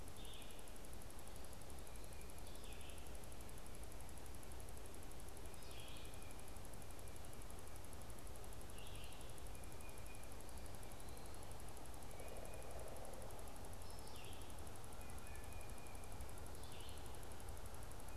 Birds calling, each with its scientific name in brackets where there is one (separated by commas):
Pileated Woodpecker (Dryocopus pileatus), Red-eyed Vireo (Vireo olivaceus), Tufted Titmouse (Baeolophus bicolor)